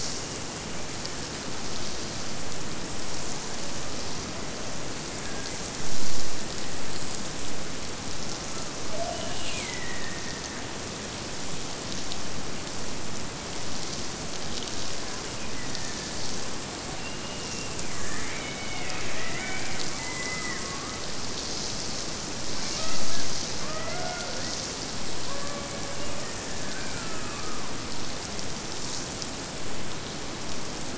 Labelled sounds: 0.0	1.5	killer whale, Bigg's (transient), Gulf of Alaska transient, 1.4 to 2.9 kHz
9.2	11.4	killer whale, Bigg's (transient), Gulf of Alaska transient, 1.6 to 3.0 kHz
15.2	16.3	killer whale, Bigg's (transient), Gulf of Alaska transient, 1.6 to 2.7 kHz
16.9	21.1	killer whale, Bigg's (transient), Gulf of Alaska transient, 0.34 to 4.0 kHz
22.5	23.3	killer whale, Bigg's (transient), Gulf of Alaska transient, 0.27 to 3.5 kHz
23.6	24.5	killer whale, Bigg's (transient), Gulf of Alaska transient, 0.46 to 3.2 kHz
25.2	26.3	killer whale, Bigg's (transient), Gulf of Alaska transient, 0.34 to 2.6 kHz

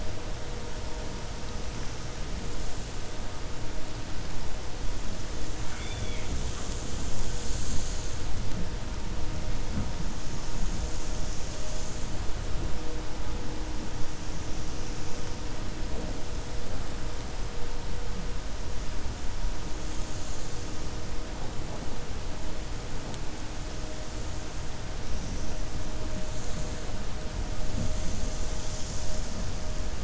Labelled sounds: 5.6	6.3	killer whale, 1.3 to 3.6 kHz

